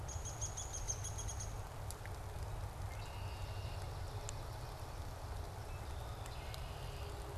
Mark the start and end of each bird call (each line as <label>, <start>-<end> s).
Downy Woodpecker (Dryobates pubescens), 0.0-1.7 s
Red-winged Blackbird (Agelaius phoeniceus), 2.8-3.9 s
Swamp Sparrow (Melospiza georgiana), 3.1-5.2 s
Red-winged Blackbird (Agelaius phoeniceus), 5.7-7.3 s